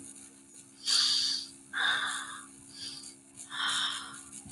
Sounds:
Sniff